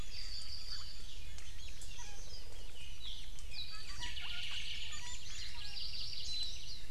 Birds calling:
Hawaii Amakihi (Chlorodrepanis virens)
Omao (Myadestes obscurus)
Chinese Hwamei (Garrulax canorus)
Iiwi (Drepanis coccinea)
Apapane (Himatione sanguinea)

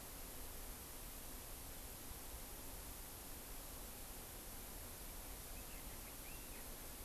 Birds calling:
Chinese Hwamei (Garrulax canorus)

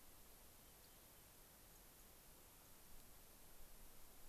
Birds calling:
White-crowned Sparrow (Zonotrichia leucophrys)
unidentified bird

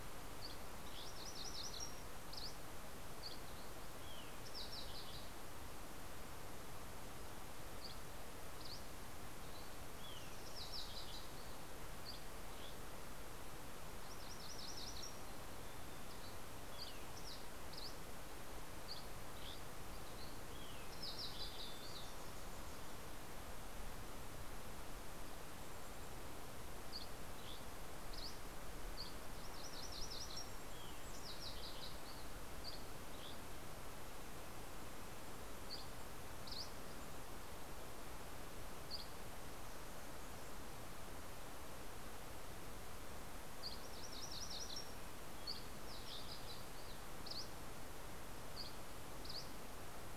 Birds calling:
Dusky Flycatcher (Empidonax oberholseri)
Mountain Chickadee (Poecile gambeli)
Red-breasted Nuthatch (Sitta canadensis)
Fox Sparrow (Passerella iliaca)
MacGillivray's Warbler (Geothlypis tolmiei)

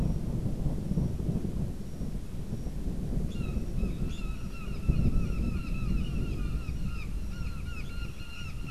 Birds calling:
Brown Jay (Psilorhinus morio)

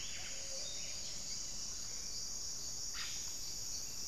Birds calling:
Gray-fronted Dove (Leptotila rufaxilla)
Plumbeous Pigeon (Patagioenas plumbea)
unidentified bird
Yellow-rumped Cacique (Cacicus cela)
Gilded Barbet (Capito auratus)

